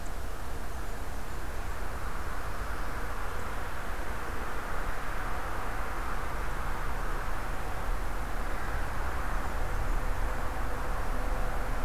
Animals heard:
forest ambience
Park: Marsh-Billings-Rockefeller National Historical Park